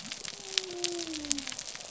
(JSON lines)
{"label": "biophony", "recorder": "SoundTrap 300"}